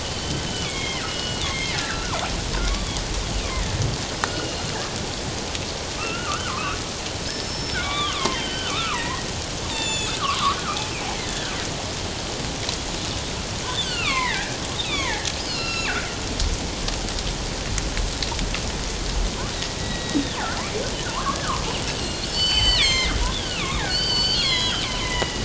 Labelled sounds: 0.6	2.2	killer whale, northern resident, G clan, 0.91 to 5.3 kHz
4.3	4.6	killer whale, northern resident, G clan, 2.8 to 3.0 kHz
6.0	10.6	killer whale, northern resident, G clan, 0.88 to 7.2 kHz
11.2	11.5	killer whale, northern resident, G clan, 1.4 to 1.9 kHz
13.7	16.2	killer whale, northern resident, G clan, 0.78 to 6.9 kHz
19.8	20.4	killer whale, northern resident, G clan, 1.8 to 4.0 kHz
21.1	21.4	killer whale, northern resident, G clan, 0.88 to 1.4 kHz
21.7	25.4	killer whale, northern resident, G clan, 0.94 to 8.0 kHz

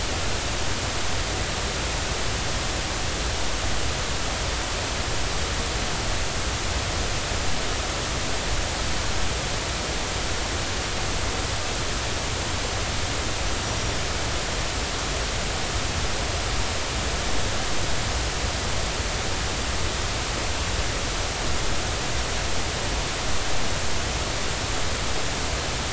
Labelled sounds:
13.6	14.0	small unidentified odontocete, 5.6 to 5.9 kHz

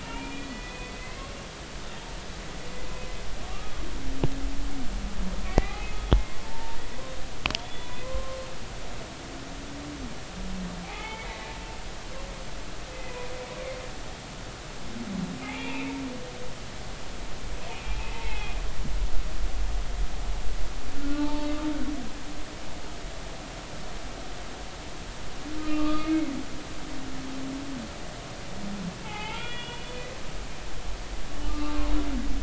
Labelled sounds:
0.0	1.2	humpback whale, 0.83 to 3.5 kHz
5.5	6.2	humpback whale, 0.80 to 3.4 kHz
6.4	7.1	humpback whale, 0.86 to 1.1 kHz
7.6	8.4	humpback whale, 0.99 to 3.6 kHz
10.8	11.3	humpback whale, 0.80 to 3.6 kHz
12.9	13.3	humpback whale, 2.4 to 2.6 kHz
15.4	15.9	humpback whale, 0.80 to 2.8 kHz
17.6	18.6	humpback whale, 0.80 to 2.8 kHz
21.0	21.5	humpback whale, 0.83 to 1.5 kHz
25.6	26.3	humpback whale, 1.1 to 2.3 kHz
29.0	30.1	humpback whale, 0.80 to 3.5 kHz
31.5	31.9	humpback whale, 0.96 to 1.2 kHz

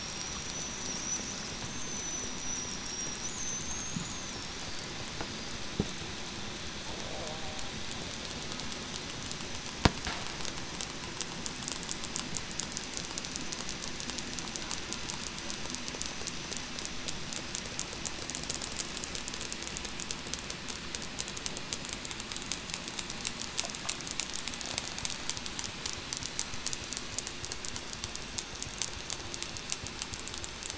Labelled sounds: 1.6	2.3	killer whale, southern resident, 5.8 to 6.4 kHz
3.4	3.9	killer whale, southern resident, 6.1 to 6.6 kHz

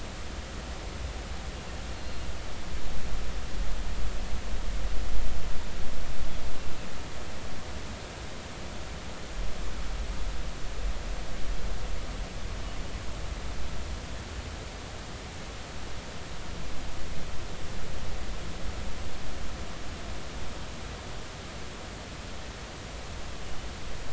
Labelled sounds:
1.9	2.3	killer whale, northern resident, 4.1 to 4.3 kHz

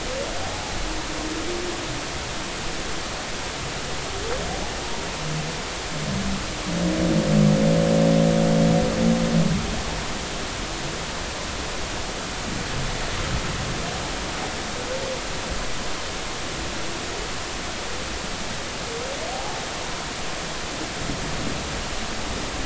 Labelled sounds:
0.4	0.7	humpback whale, 0.80 to 0.90 kHz
19.3	19.6	humpback whale, 0.80 to 0.93 kHz

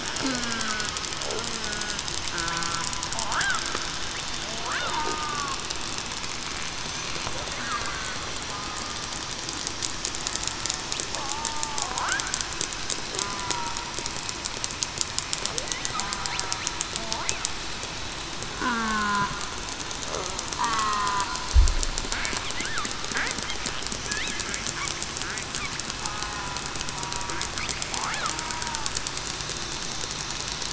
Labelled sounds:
0.2	0.6	killer whale, southern resident, 0.21 to 0.28 kHz
1.6	2.0	killer whale, southern resident, 1.4 to 1.5 kHz
2.3	2.8	killer whale, southern resident, 1.3 to 1.4 kHz
4.9	5.3	killer whale, southern resident, 0.87 to 1.1 kHz
7.8	8.2	killer whale, southern resident, 1.5 to 1.6 kHz
11.5	12.0	killer whale, southern resident, 0.68 to 0.98 kHz
13.5	13.9	killer whale, southern resident, 0.91 to 1.0 kHz
18.6	19.2	killer whale, southern resident, 0.19 to 1.7 kHz
20.6	21.3	killer whale, southern resident, 0.96 to 2.0 kHz

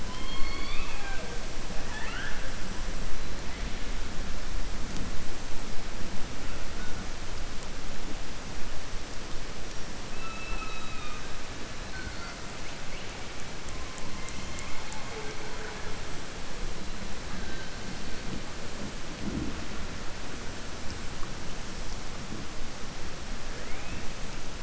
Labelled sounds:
0.0	1.4	killer whale, southern resident, 0.51 to 4.6 kHz
1.7	2.5	killer whale, southern resident, 0.83 to 3.6 kHz

